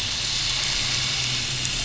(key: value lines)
label: anthrophony, boat engine
recorder: SoundTrap 500